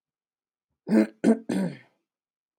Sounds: Throat clearing